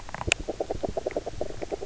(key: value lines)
label: biophony, grazing
recorder: SoundTrap 300